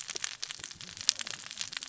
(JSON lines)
{"label": "biophony, cascading saw", "recorder": "SoundTrap 600 or HydroMoth"}